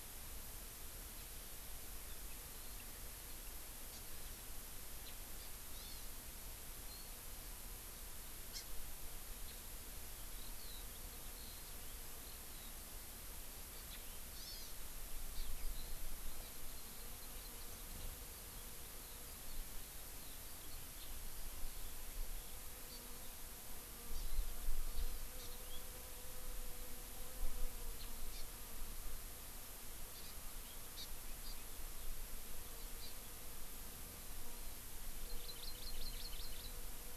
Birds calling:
Hawaii Amakihi (Chlorodrepanis virens)
Eurasian Skylark (Alauda arvensis)
Warbling White-eye (Zosterops japonicus)

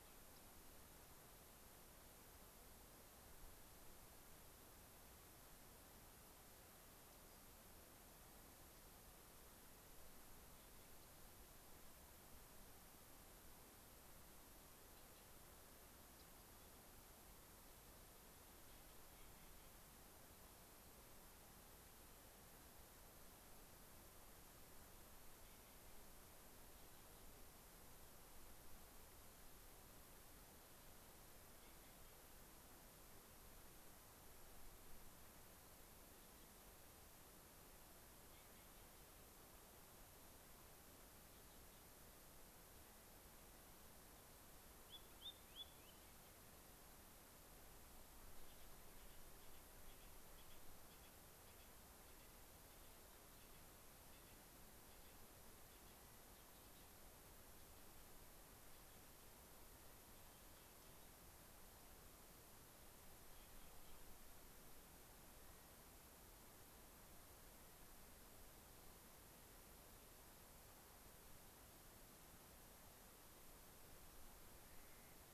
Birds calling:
Rock Wren (Salpinctes obsoletus)
unidentified bird
Spotted Sandpiper (Actitis macularius)
Clark's Nutcracker (Nucifraga columbiana)
Dark-eyed Junco (Junco hyemalis)

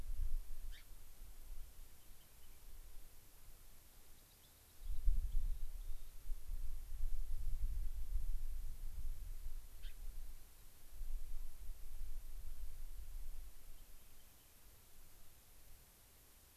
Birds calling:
unidentified bird
Rock Wren (Salpinctes obsoletus)
Gray-crowned Rosy-Finch (Leucosticte tephrocotis)

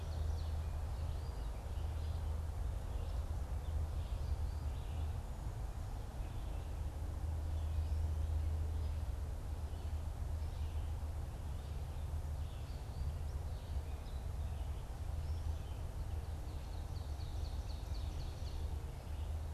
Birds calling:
Ovenbird (Seiurus aurocapilla)
Red-eyed Vireo (Vireo olivaceus)
Gray Catbird (Dumetella carolinensis)

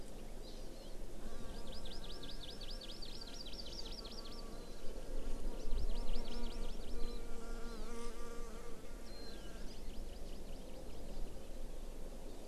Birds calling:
Warbling White-eye (Zosterops japonicus)
Hawaii Amakihi (Chlorodrepanis virens)

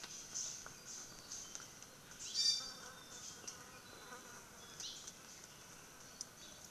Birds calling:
Hawaii Creeper (Loxops mana)
Iiwi (Drepanis coccinea)

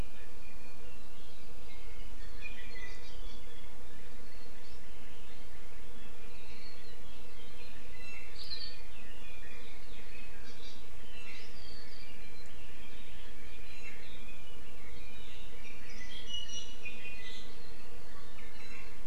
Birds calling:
Iiwi (Drepanis coccinea)

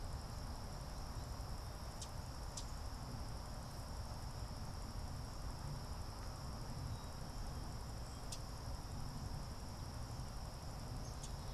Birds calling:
Common Yellowthroat (Geothlypis trichas)

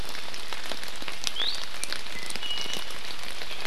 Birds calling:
Iiwi (Drepanis coccinea)

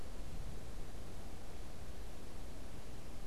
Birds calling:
unidentified bird

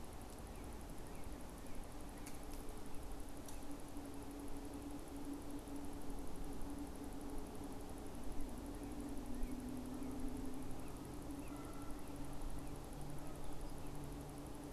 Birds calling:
Northern Cardinal (Cardinalis cardinalis)
Canada Goose (Branta canadensis)

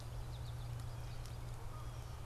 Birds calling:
Canada Goose (Branta canadensis)
American Goldfinch (Spinus tristis)

